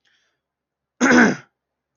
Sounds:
Throat clearing